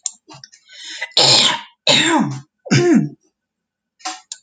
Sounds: Throat clearing